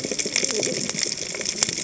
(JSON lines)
{"label": "biophony, cascading saw", "recorder": "HydroMoth"}